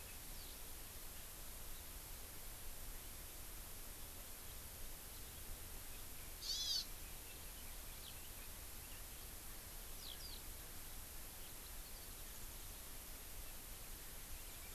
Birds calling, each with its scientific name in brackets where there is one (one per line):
Hawaii Amakihi (Chlorodrepanis virens)